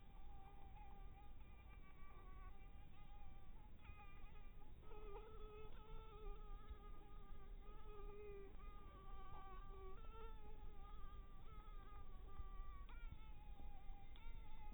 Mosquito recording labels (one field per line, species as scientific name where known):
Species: Anopheles dirus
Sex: female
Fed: unfed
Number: one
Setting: cup